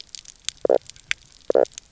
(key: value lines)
label: biophony, knock croak
recorder: SoundTrap 300